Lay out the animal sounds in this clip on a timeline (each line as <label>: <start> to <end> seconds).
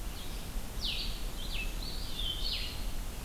Blue-headed Vireo (Vireo solitarius): 0.0 to 2.8 seconds